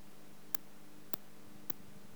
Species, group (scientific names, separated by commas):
Tylopsis lilifolia, Orthoptera